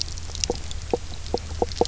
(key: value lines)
label: biophony, knock croak
recorder: SoundTrap 300